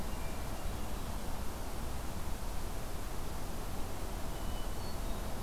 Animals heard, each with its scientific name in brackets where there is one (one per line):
Hermit Thrush (Catharus guttatus)